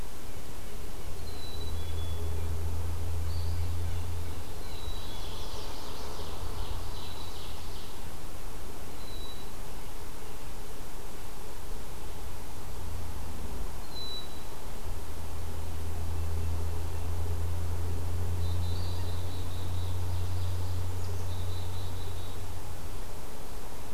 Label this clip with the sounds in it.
Black-capped Chickadee, Blue Jay, Eastern Wood-Pewee, Mourning Warbler, Ovenbird